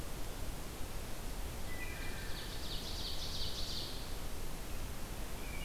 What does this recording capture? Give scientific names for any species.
Hylocichla mustelina, Seiurus aurocapilla